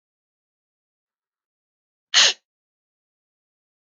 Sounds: Sneeze